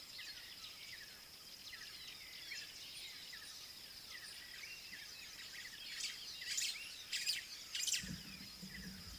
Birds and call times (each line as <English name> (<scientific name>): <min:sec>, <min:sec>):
White-browed Sparrow-Weaver (Plocepasser mahali): 0:06.6